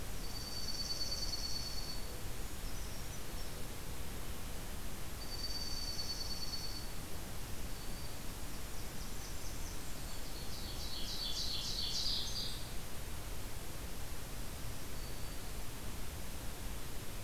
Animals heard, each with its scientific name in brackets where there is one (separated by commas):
Black-throated Green Warbler (Setophaga virens), Brown Creeper (Certhia americana), Blackburnian Warbler (Setophaga fusca), Dark-eyed Junco (Junco hyemalis), Ovenbird (Seiurus aurocapilla)